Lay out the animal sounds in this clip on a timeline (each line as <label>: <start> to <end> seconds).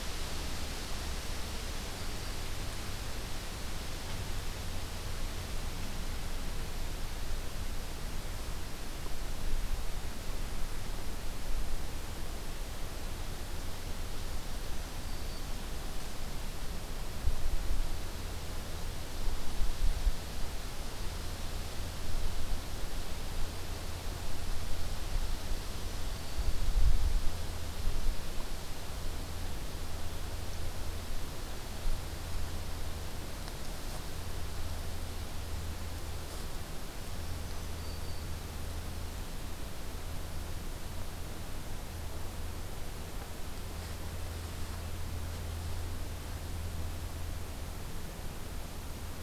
Black-throated Green Warbler (Setophaga virens): 14.9 to 15.7 seconds
Black-throated Green Warbler (Setophaga virens): 36.9 to 38.5 seconds